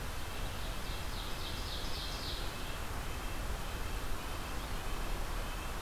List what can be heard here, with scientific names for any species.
Sitta canadensis, Seiurus aurocapilla